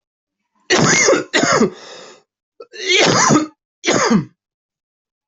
{"expert_labels": [{"quality": "good", "cough_type": "dry", "dyspnea": false, "wheezing": false, "stridor": false, "choking": false, "congestion": false, "nothing": true, "diagnosis": "lower respiratory tract infection", "severity": "mild"}], "age": 50, "gender": "male", "respiratory_condition": false, "fever_muscle_pain": false, "status": "healthy"}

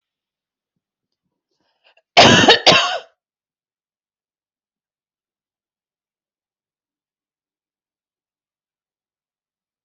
{"expert_labels": [{"quality": "good", "cough_type": "dry", "dyspnea": false, "wheezing": false, "stridor": false, "choking": false, "congestion": false, "nothing": true, "diagnosis": "healthy cough", "severity": "pseudocough/healthy cough"}], "age": 63, "gender": "female", "respiratory_condition": false, "fever_muscle_pain": false, "status": "healthy"}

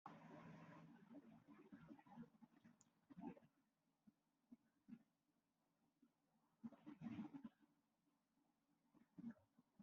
{"expert_labels": [{"quality": "no cough present", "dyspnea": false, "wheezing": false, "stridor": false, "choking": false, "congestion": false, "nothing": false}]}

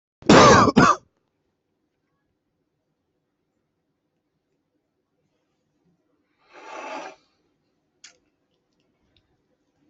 {"expert_labels": [{"quality": "good", "cough_type": "dry", "dyspnea": false, "wheezing": false, "stridor": false, "choking": false, "congestion": false, "nothing": true, "diagnosis": "healthy cough", "severity": "pseudocough/healthy cough"}], "age": 28, "gender": "male", "respiratory_condition": false, "fever_muscle_pain": false, "status": "healthy"}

